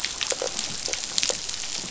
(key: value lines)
label: biophony
recorder: SoundTrap 500